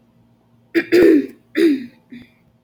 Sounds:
Throat clearing